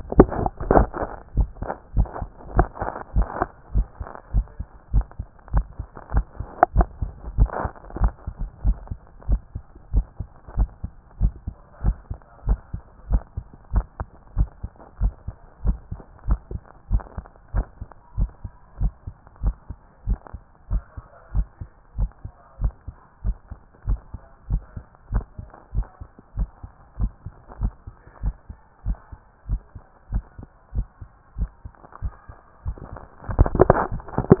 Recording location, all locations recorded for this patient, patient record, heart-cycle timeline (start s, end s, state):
tricuspid valve (TV)
aortic valve (AV)+pulmonary valve (PV)+tricuspid valve (TV)+mitral valve (MV)
#Age: nan
#Sex: Female
#Height: nan
#Weight: nan
#Pregnancy status: True
#Murmur: Absent
#Murmur locations: nan
#Most audible location: nan
#Systolic murmur timing: nan
#Systolic murmur shape: nan
#Systolic murmur grading: nan
#Systolic murmur pitch: nan
#Systolic murmur quality: nan
#Diastolic murmur timing: nan
#Diastolic murmur shape: nan
#Diastolic murmur grading: nan
#Diastolic murmur pitch: nan
#Diastolic murmur quality: nan
#Outcome: Normal
#Campaign: 2014 screening campaign
0.00	0.16	diastole
0.16	0.30	S1
0.30	0.40	systole
0.40	0.50	S2
0.50	0.68	diastole
0.68	0.88	S1
0.88	0.98	systole
0.98	1.08	S2
1.08	1.36	diastole
1.36	1.50	S1
1.50	1.60	systole
1.60	1.70	S2
1.70	1.96	diastole
1.96	2.08	S1
2.08	2.20	systole
2.20	2.28	S2
2.28	2.54	diastole
2.54	2.68	S1
2.68	2.80	systole
2.80	2.88	S2
2.88	3.16	diastole
3.16	3.28	S1
3.28	3.38	systole
3.38	3.48	S2
3.48	3.74	diastole
3.74	3.86	S1
3.86	3.98	systole
3.98	4.06	S2
4.06	4.34	diastole
4.34	4.46	S1
4.46	4.58	systole
4.58	4.66	S2
4.66	4.94	diastole
4.94	5.06	S1
5.06	5.18	systole
5.18	5.26	S2
5.26	5.54	diastole
5.54	5.66	S1
5.66	5.78	systole
5.78	5.86	S2
5.86	6.14	diastole
6.14	6.26	S1
6.26	6.38	systole
6.38	6.46	S2
6.46	6.74	diastole
6.74	6.88	S1
6.88	7.00	systole
7.00	7.10	S2
7.10	7.36	diastole
7.36	7.50	S1
7.50	7.62	systole
7.62	7.72	S2
7.72	8.00	diastole
8.00	8.12	S1
8.12	8.24	systole
8.24	8.34	S2
8.34	8.64	diastole
8.64	8.78	S1
8.78	8.90	systole
8.90	9.00	S2
9.00	9.28	diastole
9.28	9.40	S1
9.40	9.54	systole
9.54	9.64	S2
9.64	9.94	diastole
9.94	10.06	S1
10.06	10.18	systole
10.18	10.28	S2
10.28	10.56	diastole
10.56	10.70	S1
10.70	10.82	systole
10.82	10.92	S2
10.92	11.20	diastole
11.20	11.34	S1
11.34	11.46	systole
11.46	11.56	S2
11.56	11.84	diastole
11.84	11.96	S1
11.96	12.08	systole
12.08	12.18	S2
12.18	12.46	diastole
12.46	12.60	S1
12.60	12.72	systole
12.72	12.82	S2
12.82	13.10	diastole
13.10	13.22	S1
13.22	13.34	systole
13.34	13.44	S2
13.44	13.74	diastole
13.74	13.86	S1
13.86	13.98	systole
13.98	14.08	S2
14.08	14.38	diastole
14.38	14.50	S1
14.50	14.62	systole
14.62	14.72	S2
14.72	15.02	diastole
15.02	15.14	S1
15.14	15.26	systole
15.26	15.36	S2
15.36	15.64	diastole
15.64	15.78	S1
15.78	15.90	systole
15.90	16.00	S2
16.00	16.28	diastole
16.28	16.40	S1
16.40	16.52	systole
16.52	16.62	S2
16.62	16.92	diastole
16.92	17.04	S1
17.04	17.16	systole
17.16	17.26	S2
17.26	17.54	diastole
17.54	17.66	S1
17.66	17.78	systole
17.78	17.88	S2
17.88	18.18	diastole
18.18	18.30	S1
18.30	18.42	systole
18.42	18.52	S2
18.52	18.80	diastole
18.80	18.92	S1
18.92	19.04	systole
19.04	19.14	S2
19.14	19.44	diastole
19.44	19.56	S1
19.56	19.68	systole
19.68	19.78	S2
19.78	20.06	diastole
20.06	20.18	S1
20.18	20.30	systole
20.30	20.40	S2
20.40	20.70	diastole
20.70	20.82	S1
20.82	20.94	systole
20.94	21.04	S2
21.04	21.34	diastole
21.34	21.46	S1
21.46	21.58	systole
21.58	21.68	S2
21.68	21.98	diastole
21.98	22.10	S1
22.10	22.22	systole
22.22	22.32	S2
22.32	22.62	diastole
22.62	22.74	S1
22.74	22.86	systole
22.86	22.96	S2
22.96	23.24	diastole
23.24	23.36	S1
23.36	23.48	systole
23.48	23.58	S2
23.58	23.88	diastole
23.88	24.00	S1
24.00	24.12	systole
24.12	24.22	S2
24.22	24.50	diastole
24.50	24.62	S1
24.62	24.74	systole
24.74	24.84	S2
24.84	25.12	diastole
25.12	25.24	S1
25.24	25.36	systole
25.36	25.46	S2
25.46	25.74	diastole
25.74	25.86	S1
25.86	25.98	systole
25.98	26.08	S2
26.08	26.38	diastole
26.38	26.50	S1
26.50	26.62	systole
26.62	26.72	S2
26.72	27.00	diastole
27.00	27.12	S1
27.12	27.24	systole
27.24	27.32	S2
27.32	27.60	diastole
27.60	27.72	S1
27.72	27.84	systole
27.84	27.94	S2
27.94	28.24	diastole
28.24	28.36	S1
28.36	28.48	systole
28.48	28.58	S2
28.58	28.86	diastole
28.86	28.98	S1
28.98	29.10	systole
29.10	29.20	S2
29.20	29.48	diastole
29.48	29.60	S1
29.60	29.72	systole
29.72	29.82	S2
29.82	30.12	diastole
30.12	30.24	S1
30.24	30.36	systole
30.36	30.46	S2
30.46	30.74	diastole
30.74	30.86	S1
30.86	30.98	systole
30.98	31.08	S2
31.08	31.38	diastole
31.38	31.50	S1
31.50	31.62	systole
31.62	31.72	S2
31.72	32.02	diastole
32.02	32.14	S1
32.14	32.26	systole
32.26	32.36	S2
32.36	32.66	diastole
32.66	32.78	S1
32.78	32.92	systole
32.92	33.02	S2
33.02	33.34	diastole
33.34	33.52	S1
33.52	33.68	systole
33.68	33.82	S2
33.82	34.14	diastole
34.14	34.28	S1
34.28	34.40	systole